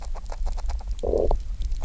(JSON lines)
{"label": "biophony", "recorder": "SoundTrap 300"}
{"label": "biophony, grazing", "recorder": "SoundTrap 300"}